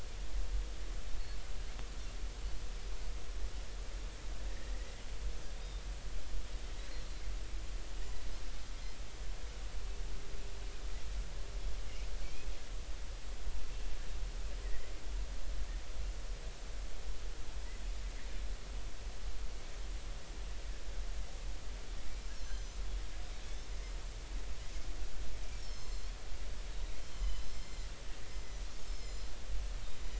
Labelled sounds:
5.6	5.8	Pacific white-sided dolphin, 3.6 to 3.8 kHz
12.2	12.5	Pacific white-sided dolphin, 2.2 to 2.6 kHz
14.6	14.9	Pacific white-sided dolphin, 1.8 to 2.1 kHz
22.4	22.8	Pacific white-sided dolphin, 4.0 to 6.3 kHz
23.4	23.7	Pacific white-sided dolphin, 3.3 to 3.6 kHz
25.5	26.1	Pacific white-sided dolphin, 4.0 to 7.5 kHz
27.0	27.9	Pacific white-sided dolphin, 1.9 to 7.3 kHz
28.4	28.6	Pacific white-sided dolphin, 5.8 to 6.2 kHz
28.9	29.3	Pacific white-sided dolphin, 4.0 to 5.4 kHz

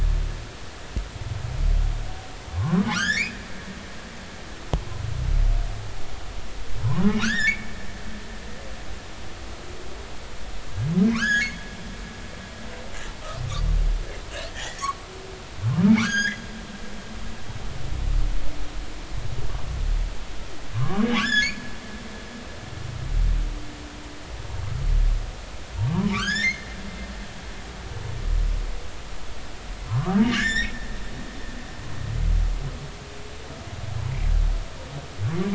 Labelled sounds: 2.6	3.4	humpback whale, 0.96 to 8.0 kHz
6.8	7.7	humpback whale, 0.83 to 7.5 kHz
11.1	11.6	humpback whale, 0.93 to 7.0 kHz
14.5	14.8	humpback whale, 1.6 to 2.0 kHz
16.0	16.4	humpback whale, 1.0 to 6.8 kHz
20.7	21.6	humpback whale, 0.99 to 7.1 kHz
26.1	26.7	humpback whale, 1.1 to 7.3 kHz
29.9	30.7	humpback whale, 0.90 to 7.6 kHz
31.4	31.7	humpback whale, 3.3 to 4.0 kHz

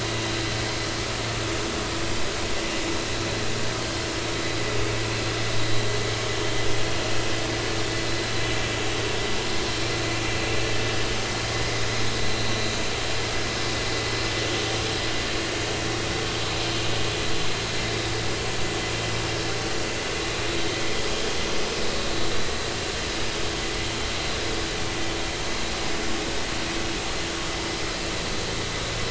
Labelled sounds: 12.4	12.8	vessel noise, 3.8 to 4.0 kHz

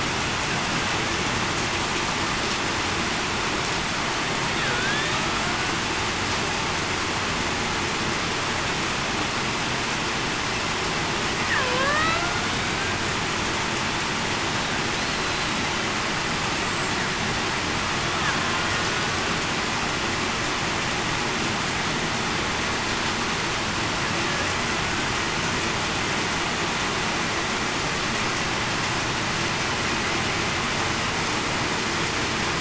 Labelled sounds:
4.7	5.1	killer whale, Bigg's (transient), 1.4 to 1.9 kHz
11.6	12.0	killer whale, Bigg's (transient), 0.47 to 0.63 kHz
15.1	15.5	killer whale, Bigg's (transient), 4.0 to 4.2 kHz

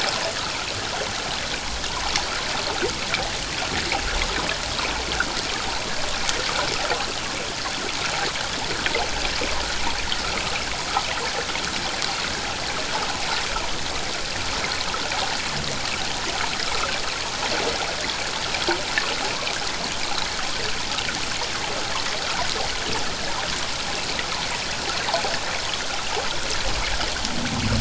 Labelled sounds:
25.1	25.3	water noise, 0.78 to 1.1 kHz

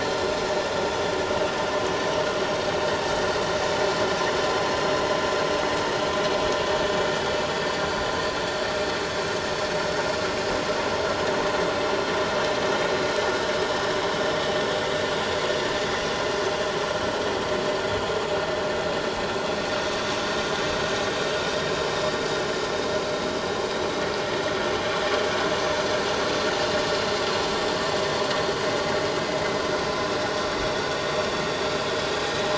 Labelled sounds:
11.8	12.1	vessel noise, 5.5 to 5.7 kHz

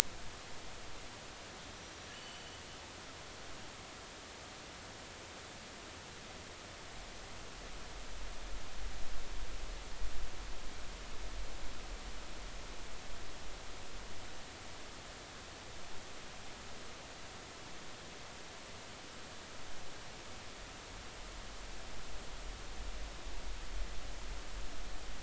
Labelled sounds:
2.1	2.6	killer whale, northern resident, G clan, call N23i, 2.7 to 3.1 kHz

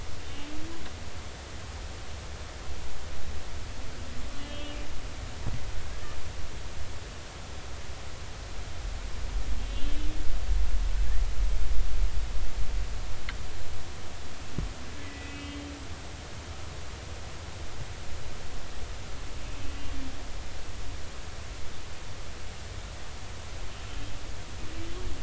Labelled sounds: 4.4	4.8	humpback whale, 2.8 to 3.3 kHz
9.7	10.0	humpback whale, 3.3 to 3.5 kHz
15.0	15.7	humpback whale, 1.9 to 3.2 kHz

